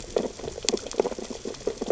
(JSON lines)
{"label": "biophony, sea urchins (Echinidae)", "recorder": "SoundTrap 600 or HydroMoth"}